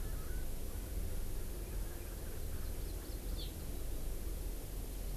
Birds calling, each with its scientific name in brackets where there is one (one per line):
Erckel's Francolin (Pternistis erckelii)
Hawaii Amakihi (Chlorodrepanis virens)